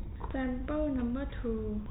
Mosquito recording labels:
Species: no mosquito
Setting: cup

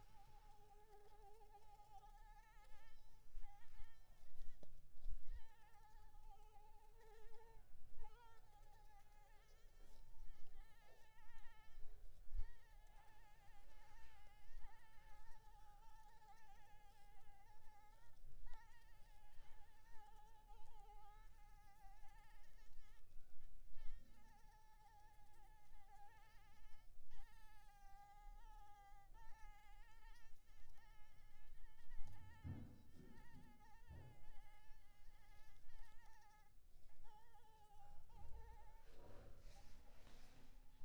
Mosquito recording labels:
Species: Anopheles maculipalpis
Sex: female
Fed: blood-fed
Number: one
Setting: cup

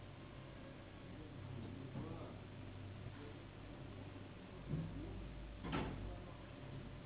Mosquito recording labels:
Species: Anopheles gambiae s.s.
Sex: female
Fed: unfed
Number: one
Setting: insect culture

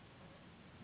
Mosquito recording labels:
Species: Anopheles gambiae s.s.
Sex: female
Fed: unfed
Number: one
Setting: insect culture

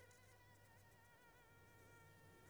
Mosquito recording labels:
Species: Anopheles squamosus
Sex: female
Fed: unfed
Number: one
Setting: cup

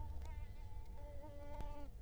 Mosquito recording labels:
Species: Culex quinquefasciatus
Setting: cup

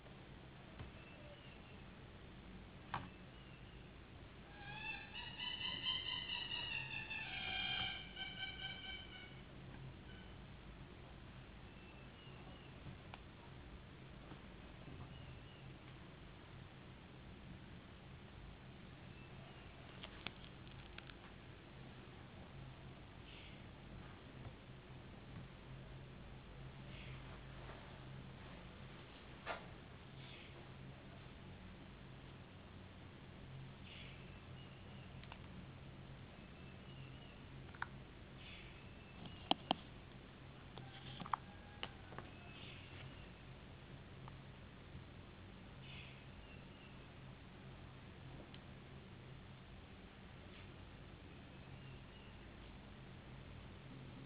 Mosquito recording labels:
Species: no mosquito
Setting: insect culture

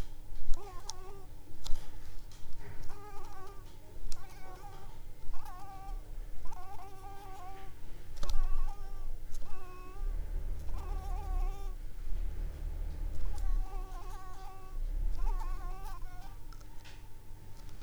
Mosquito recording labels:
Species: Anopheles coustani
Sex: female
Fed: unfed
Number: one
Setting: cup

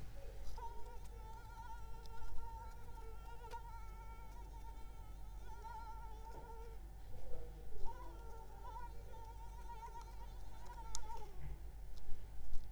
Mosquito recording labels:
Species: Anopheles arabiensis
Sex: female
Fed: unfed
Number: one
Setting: cup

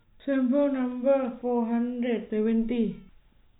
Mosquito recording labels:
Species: no mosquito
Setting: cup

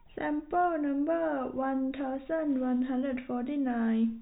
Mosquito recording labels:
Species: no mosquito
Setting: cup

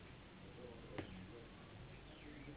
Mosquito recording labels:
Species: Anopheles gambiae s.s.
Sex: female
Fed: unfed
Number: one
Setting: insect culture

